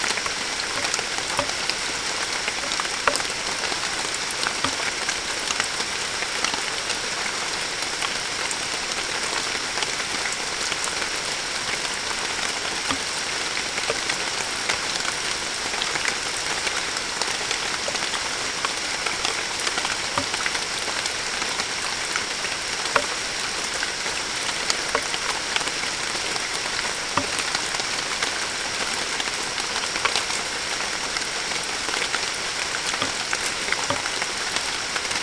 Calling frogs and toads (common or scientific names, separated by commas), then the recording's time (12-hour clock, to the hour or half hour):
none
~5am